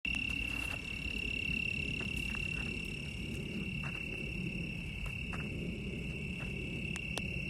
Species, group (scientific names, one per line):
Oecanthus californicus
Orthoptera